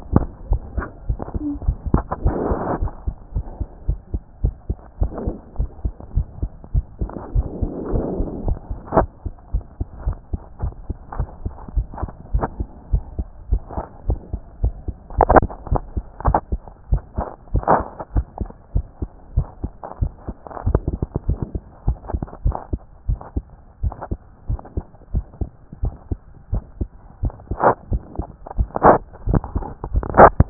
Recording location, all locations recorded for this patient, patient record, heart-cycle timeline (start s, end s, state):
tricuspid valve (TV)
aortic valve (AV)+pulmonary valve (PV)+tricuspid valve (TV)+mitral valve (MV)
#Age: Child
#Sex: Male
#Height: 133.0 cm
#Weight: 27.6 kg
#Pregnancy status: False
#Murmur: Absent
#Murmur locations: nan
#Most audible location: nan
#Systolic murmur timing: nan
#Systolic murmur shape: nan
#Systolic murmur grading: nan
#Systolic murmur pitch: nan
#Systolic murmur quality: nan
#Diastolic murmur timing: nan
#Diastolic murmur shape: nan
#Diastolic murmur grading: nan
#Diastolic murmur pitch: nan
#Diastolic murmur quality: nan
#Outcome: Normal
#Campaign: 2014 screening campaign
0.00	2.78	unannotated
2.78	2.90	S1
2.90	3.06	systole
3.06	3.16	S2
3.16	3.34	diastole
3.34	3.46	S1
3.46	3.58	systole
3.58	3.68	S2
3.68	3.86	diastole
3.86	3.98	S1
3.98	4.12	systole
4.12	4.22	S2
4.22	4.42	diastole
4.42	4.54	S1
4.54	4.68	systole
4.68	4.78	S2
4.78	5.00	diastole
5.00	5.12	S1
5.12	5.24	systole
5.24	5.34	S2
5.34	5.58	diastole
5.58	5.70	S1
5.70	5.84	systole
5.84	5.92	S2
5.92	6.14	diastole
6.14	6.26	S1
6.26	6.40	systole
6.40	6.50	S2
6.50	6.74	diastole
6.74	6.84	S1
6.84	7.00	systole
7.00	7.10	S2
7.10	7.34	diastole
7.34	30.50	unannotated